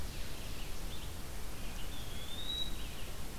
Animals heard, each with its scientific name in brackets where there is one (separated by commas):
Red-eyed Vireo (Vireo olivaceus), Ovenbird (Seiurus aurocapilla), Eastern Wood-Pewee (Contopus virens)